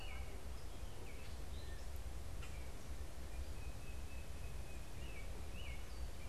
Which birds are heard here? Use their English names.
American Robin, Common Grackle